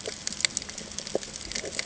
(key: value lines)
label: ambient
recorder: HydroMoth